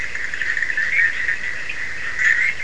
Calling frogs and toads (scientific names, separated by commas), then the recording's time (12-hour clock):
Boana bischoffi, Sphaenorhynchus surdus
1:30am